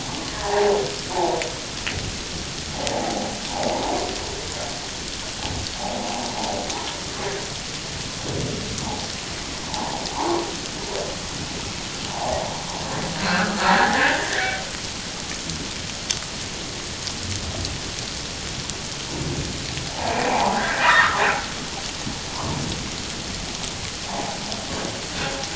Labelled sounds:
0.3	1.4	humpback whale, 0.78 to 1.9 kHz
2.9	3.3	humpback whale, 0.78 to 0.94 kHz
9.7	10.4	humpback whale, 0.78 to 1.2 kHz
12.1	12.4	humpback whale, 0.78 to 1.1 kHz
13.2	14.6	humpback whale, 1.2 to 2.0 kHz
19.9	21.2	humpback whale, 0.78 to 2.5 kHz

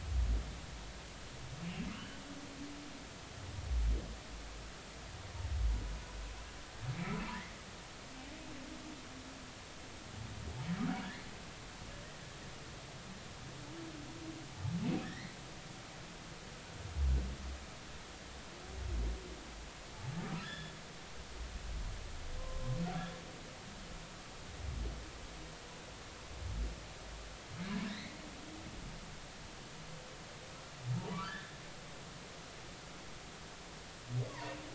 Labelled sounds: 1.9	2.2	humpback whale, 2.7 to 3.1 kHz
6.9	7.2	humpback whale, 2.1 to 2.4 kHz
15.0	15.3	humpback whale, 1.7 to 2.2 kHz
20.4	20.7	humpback whale, 1.6 to 5.3 kHz
22.4	22.8	humpback whale, 0.99 to 1.1 kHz
27.9	28.2	humpback whale, 1.7 to 2.3 kHz
30.9	31.5	humpback whale, 0.80 to 1.9 kHz

